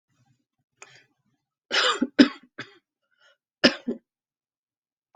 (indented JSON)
{
  "expert_labels": [
    {
      "quality": "ok",
      "cough_type": "dry",
      "dyspnea": false,
      "wheezing": false,
      "stridor": false,
      "choking": false,
      "congestion": false,
      "nothing": true,
      "diagnosis": "COVID-19",
      "severity": "mild"
    }
  ],
  "age": 57,
  "gender": "female",
  "respiratory_condition": false,
  "fever_muscle_pain": false,
  "status": "healthy"
}